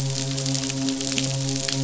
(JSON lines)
{"label": "biophony, midshipman", "recorder": "SoundTrap 500"}